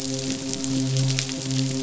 {"label": "biophony, midshipman", "recorder": "SoundTrap 500"}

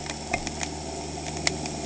{"label": "anthrophony, boat engine", "recorder": "HydroMoth"}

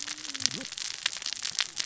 {"label": "biophony, cascading saw", "recorder": "SoundTrap 600 or HydroMoth"}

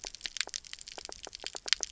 {"label": "biophony, knock croak", "recorder": "SoundTrap 300"}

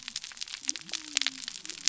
{"label": "biophony", "recorder": "SoundTrap 300"}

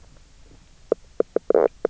{"label": "biophony, knock croak", "recorder": "SoundTrap 300"}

